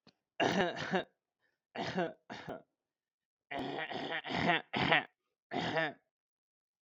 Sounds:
Throat clearing